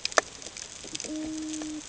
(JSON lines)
{"label": "ambient", "recorder": "HydroMoth"}